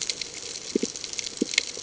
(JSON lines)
{"label": "ambient", "recorder": "HydroMoth"}